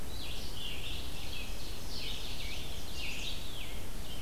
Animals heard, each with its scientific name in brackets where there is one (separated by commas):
Ovenbird (Seiurus aurocapilla), Scarlet Tanager (Piranga olivacea), Red-eyed Vireo (Vireo olivaceus)